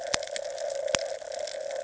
{"label": "ambient", "recorder": "HydroMoth"}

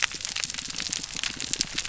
{"label": "biophony", "recorder": "SoundTrap 300"}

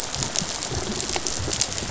{"label": "biophony, rattle response", "recorder": "SoundTrap 500"}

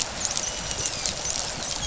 {"label": "biophony, dolphin", "recorder": "SoundTrap 500"}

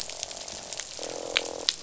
{"label": "biophony, croak", "recorder": "SoundTrap 500"}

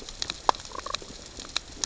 {"label": "biophony, damselfish", "recorder": "SoundTrap 600 or HydroMoth"}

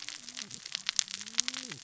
{"label": "biophony, cascading saw", "recorder": "SoundTrap 600 or HydroMoth"}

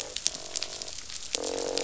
{"label": "biophony, croak", "recorder": "SoundTrap 500"}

